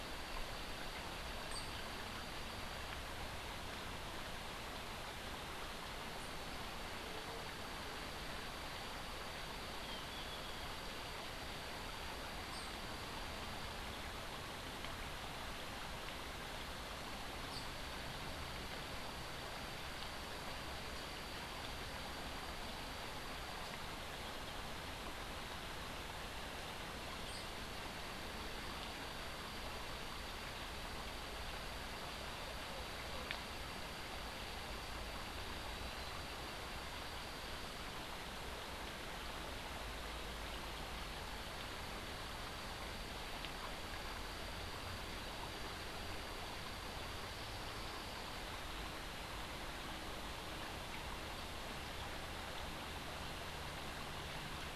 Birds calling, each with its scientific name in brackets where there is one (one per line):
Clay-colored Thrush (Turdus grayi)
Tennessee Warbler (Leiothlypis peregrina)